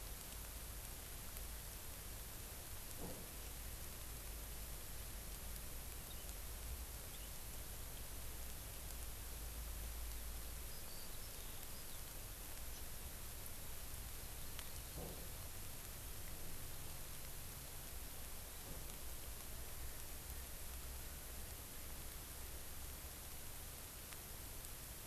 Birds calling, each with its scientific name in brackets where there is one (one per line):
Eurasian Skylark (Alauda arvensis)